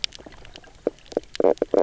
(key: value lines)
label: biophony, knock croak
recorder: SoundTrap 300